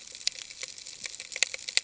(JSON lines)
{"label": "ambient", "recorder": "HydroMoth"}